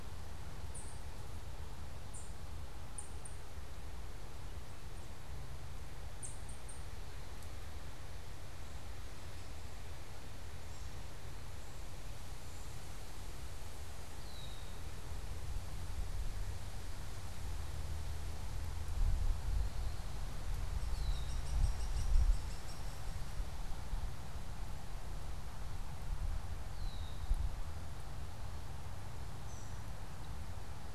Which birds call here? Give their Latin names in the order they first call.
Seiurus aurocapilla, Agelaius phoeniceus, Dryobates villosus, unidentified bird